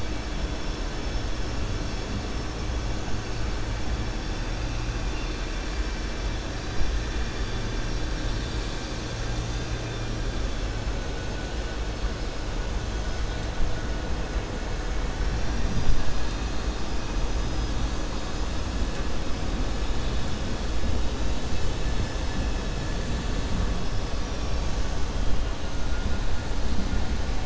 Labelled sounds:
24.0	24.8	vessel noise, 4.5 to 6.3 kHz

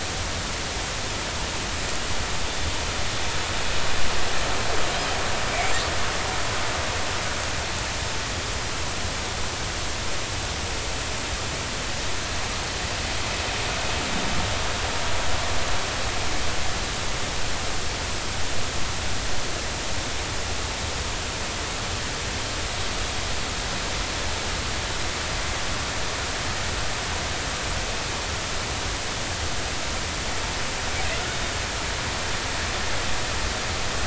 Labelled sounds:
31.3	31.5	killer whale, northern resident, G clan, 3.6 to 3.7 kHz

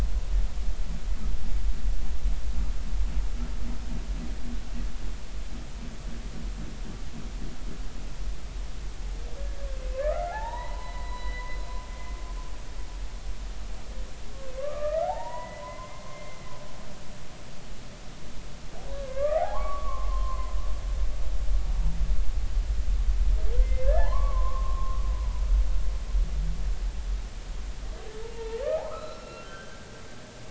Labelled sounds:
9.9	11.5	humpback whale, 0.80 to 4.0 kHz
14.6	16.5	humpback whale, 0.80 to 2.1 kHz
18.9	20.5	humpback whale, 0.80 to 2.2 kHz
23.6	25.4	humpback whale, 0.80 to 2.1 kHz
28.3	29.9	humpback whale, 0.80 to 4.1 kHz

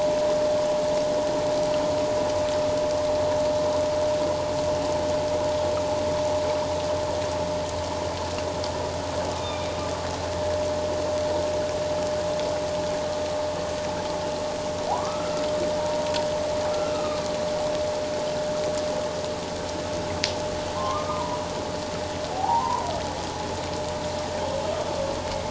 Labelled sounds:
9.4	9.7	humpback whale, 2.3 to 2.5 kHz
14.9	16.1	humpback whale, 0.78 to 1.5 kHz
16.9	17.2	humpback whale, 1.1 to 1.3 kHz
20.8	21.4	humpback whale, 0.88 to 1.3 kHz
22.3	22.9	humpback whale, 0.78 to 1.1 kHz

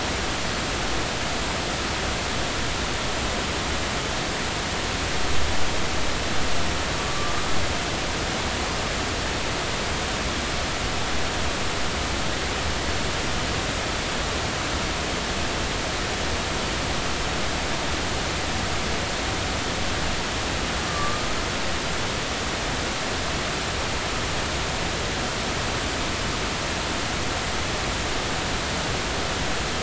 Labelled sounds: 20.9	21.3	humpback whale, 1.1 to 1.2 kHz

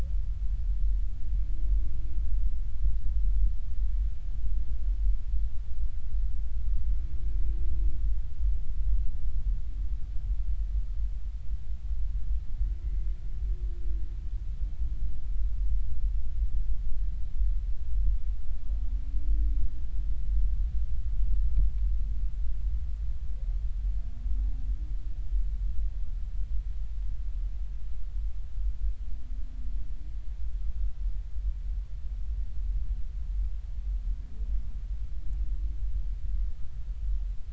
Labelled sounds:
12.8	13.1	humpback whale, 2.0 to 2.1 kHz

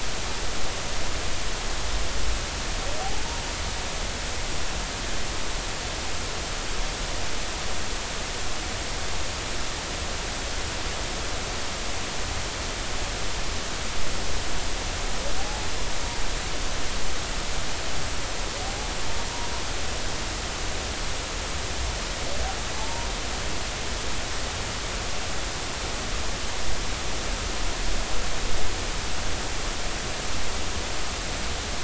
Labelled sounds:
22.8	23.1	humpback whale, 0.83 to 1.0 kHz

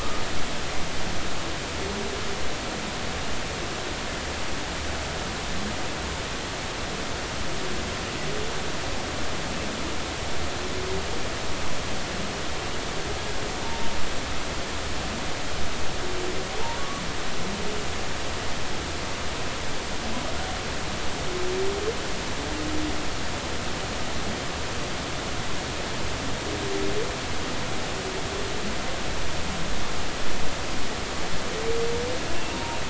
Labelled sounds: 13.6	13.9	humpback whale, 0.83 to 0.96 kHz
32.5	32.8	humpback whale, 0.90 to 0.99 kHz

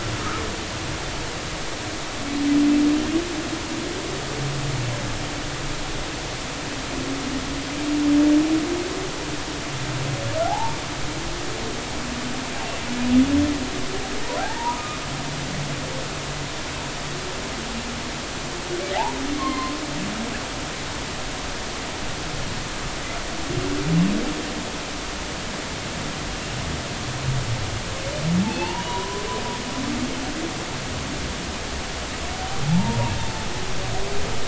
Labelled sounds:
10.4	10.8	humpback whale, 0.80 to 0.99 kHz
14.4	15.0	humpback whale, 0.80 to 1.3 kHz
19.4	19.8	humpback whale, 0.99 to 4.3 kHz
28.5	29.2	humpback whale, 0.80 to 4.5 kHz
32.6	33.1	humpback whale, 0.80 to 0.99 kHz

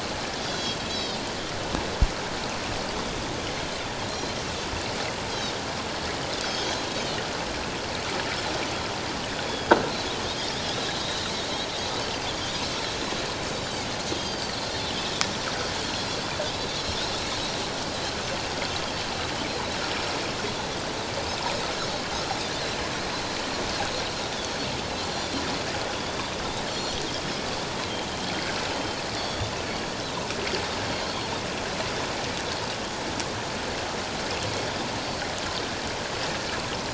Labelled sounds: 0.4	1.2	Pacific white-sided dolphin, 3.1 to 6.1 kHz
4.1	4.4	Pacific white-sided dolphin, 4.0 to 4.2 kHz
6.4	6.8	Pacific white-sided dolphin, 3.2 to 6.6 kHz
10.7	11.3	Pacific white-sided dolphin, 3.6 to 4.2 kHz
13.5	14.5	Pacific white-sided dolphin, 3.1 to 7.2 kHz
15.8	16.2	Pacific white-sided dolphin, 4.0 to 4.4 kHz
24.3	24.6	Pacific white-sided dolphin, 3.2 to 3.6 kHz
26.0	26.2	Pacific white-sided dolphin, 3.3 to 3.6 kHz
26.7	27.0	Pacific white-sided dolphin, 4.2 to 5.8 kHz
28.7	29.5	Pacific white-sided dolphin, 3.0 to 4.8 kHz
30.9	31.2	Pacific white-sided dolphin, 4.1 to 4.4 kHz

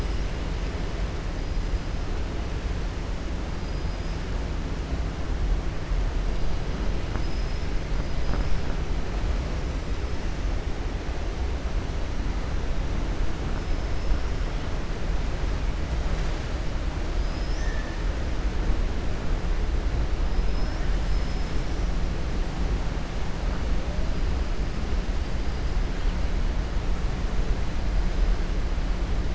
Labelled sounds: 3.6	4.2	killer whale, 4.9 to 5.9 kHz
8.0	8.6	killer whale, 4.0 to 5.7 kHz

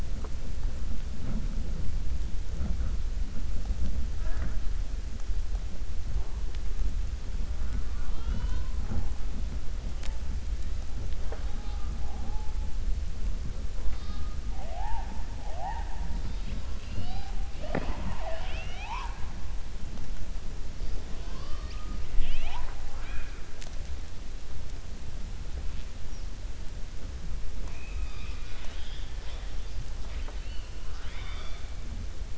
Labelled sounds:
22.8	23.4	killer whale, 0.69 to 3.8 kHz
27.5	29.5	killer whale, 0.40 to 5.9 kHz
30.9	31.6	killer whale, 0.66 to 5.8 kHz

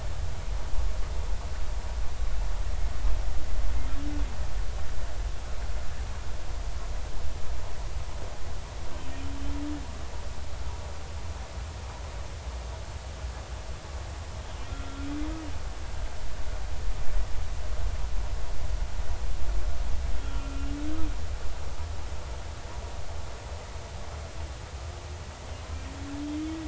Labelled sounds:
14.7	15.1	humpback whale, 1.3 to 1.5 kHz
20.2	20.7	humpback whale, 1.3 to 2.5 kHz

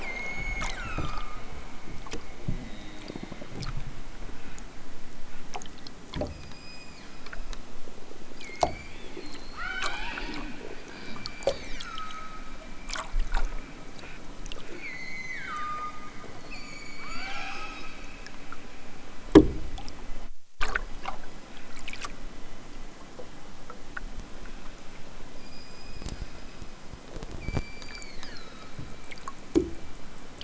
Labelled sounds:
0.0	1.5	killer whale, southern Alaska resident, 0.83 to 8.0 kHz
6.2	7.3	killer whale, southern Alaska resident, 0.87 to 8.0 kHz
9.2	10.3	killer whale, southern Alaska resident, 0.46 to 8.0 kHz
10.8	12.6	killer whale, southern Alaska resident, 0.96 to 8.0 kHz
14.6	16.1	killer whale, southern Alaska resident, 0.92 to 8.0 kHz
16.5	18.1	killer whale, southern Alaska resident, 0.28 to 8.0 kHz
25.4	26.6	killer whale, southern Alaska resident, 0.96 to 8.0 kHz
27.4	28.8	killer whale, southern Alaska resident, 0.96 to 7.7 kHz

